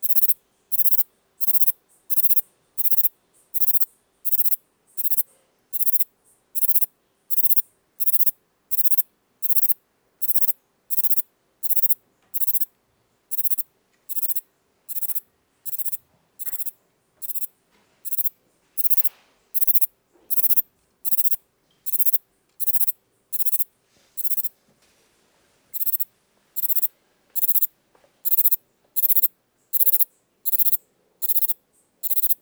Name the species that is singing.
Platycleis intermedia